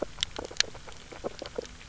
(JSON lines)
{"label": "biophony, grazing", "recorder": "SoundTrap 300"}